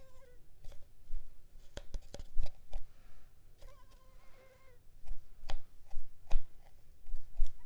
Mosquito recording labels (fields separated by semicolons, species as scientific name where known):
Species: Culex pipiens complex; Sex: female; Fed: unfed; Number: one; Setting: cup